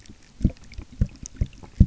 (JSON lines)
{"label": "geophony, waves", "recorder": "SoundTrap 300"}